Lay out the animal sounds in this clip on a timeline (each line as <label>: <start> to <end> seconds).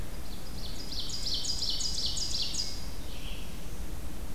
Ovenbird (Seiurus aurocapilla): 0.0 to 3.2 seconds
Red-eyed Vireo (Vireo olivaceus): 2.9 to 3.7 seconds